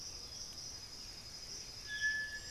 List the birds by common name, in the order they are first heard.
Black-billed Thrush, Striped Cuckoo, Boat-billed Flycatcher